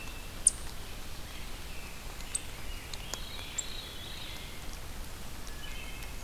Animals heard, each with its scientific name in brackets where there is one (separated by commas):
Eastern Chipmunk (Tamias striatus), Rose-breasted Grosbeak (Pheucticus ludovicianus), Veery (Catharus fuscescens), Wood Thrush (Hylocichla mustelina)